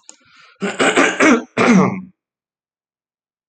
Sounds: Throat clearing